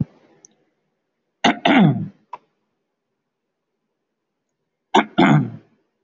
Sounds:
Throat clearing